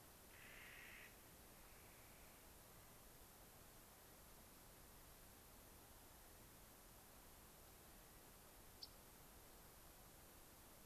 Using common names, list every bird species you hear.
Clark's Nutcracker, Yellow-rumped Warbler